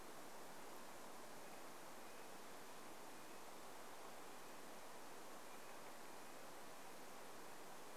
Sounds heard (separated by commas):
Red-breasted Nuthatch song